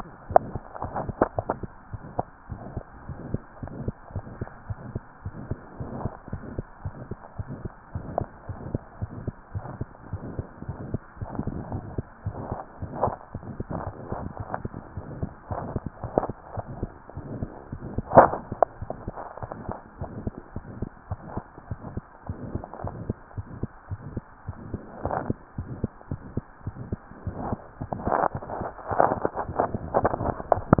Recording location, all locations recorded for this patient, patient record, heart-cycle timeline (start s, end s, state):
tricuspid valve (TV)
aortic valve (AV)+pulmonary valve (PV)+tricuspid valve (TV)+mitral valve (MV)
#Age: Child
#Sex: Female
#Height: 96.0 cm
#Weight: 16.0 kg
#Pregnancy status: False
#Murmur: Present
#Murmur locations: aortic valve (AV)+mitral valve (MV)+pulmonary valve (PV)+tricuspid valve (TV)
#Most audible location: aortic valve (AV)
#Systolic murmur timing: Mid-systolic
#Systolic murmur shape: Diamond
#Systolic murmur grading: III/VI or higher
#Systolic murmur pitch: Medium
#Systolic murmur quality: Harsh
#Diastolic murmur timing: nan
#Diastolic murmur shape: nan
#Diastolic murmur grading: nan
#Diastolic murmur pitch: nan
#Diastolic murmur quality: nan
#Outcome: Abnormal
#Campaign: 2015 screening campaign
0.00	1.70	unannotated
1.70	1.92	diastole
1.92	2.04	S1
2.04	2.14	systole
2.14	2.26	S2
2.26	2.50	diastole
2.50	2.62	S1
2.62	2.72	systole
2.72	2.82	S2
2.82	3.08	diastole
3.08	3.20	S1
3.20	3.26	systole
3.26	3.42	S2
3.42	3.62	diastole
3.62	3.70	S1
3.70	3.85	systole
3.85	3.92	S2
3.92	4.12	diastole
4.12	4.24	S1
4.24	4.39	systole
4.39	4.44	S2
4.44	4.66	diastole
4.66	4.78	S1
4.78	4.86	systole
4.86	5.02	S2
5.02	5.24	diastole
5.24	5.34	S1
5.34	5.44	systole
5.44	5.58	S2
5.58	5.78	diastole
5.78	5.86	S1
5.86	6.03	systole
6.03	6.10	S2
6.10	6.32	diastole
6.32	6.39	S1
6.39	6.57	systole
6.57	6.63	S2
6.63	6.84	diastole
6.84	6.91	S1
6.91	7.10	systole
7.10	7.17	S2
7.17	7.38	diastole
7.38	7.45	S1
7.45	7.64	systole
7.64	7.72	S2
7.72	7.94	diastole
7.94	8.02	S1
8.02	8.18	systole
8.18	8.28	S2
8.28	8.48	diastole
8.48	8.55	S1
8.55	8.72	systole
8.72	8.80	S2
8.80	9.00	diastole
9.00	9.08	S1
9.08	9.25	systole
9.25	9.31	S2
9.31	9.54	diastole
9.54	9.62	S1
9.62	9.78	systole
9.78	9.88	S2
9.88	10.10	diastole
10.10	10.19	S1
10.19	10.36	systole
10.36	10.43	S2
10.43	10.66	diastole
10.66	10.74	S1
10.74	10.92	systole
10.92	10.98	S2
10.98	11.20	diastole
11.20	11.27	S1
11.27	11.37	systole
11.37	11.46	S2
11.46	11.72	diastole
11.72	11.80	S1
11.80	11.96	systole
11.96	12.02	S2
12.02	12.25	diastole
12.25	12.34	S1
12.34	12.48	systole
12.48	12.58	S2
12.58	12.80	diastole
12.80	12.89	S1
12.89	13.04	systole
13.04	13.14	S2
13.14	13.33	diastole
13.33	13.40	S1
13.40	13.59	systole
13.59	13.64	S2
13.64	13.86	diastole
13.86	30.80	unannotated